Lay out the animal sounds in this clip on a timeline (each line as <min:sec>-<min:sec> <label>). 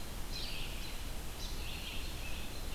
0:00.0-0:01.6 American Robin (Turdus migratorius)
0:00.0-0:02.7 Red-eyed Vireo (Vireo olivaceus)
0:01.3-0:02.7 Scarlet Tanager (Piranga olivacea)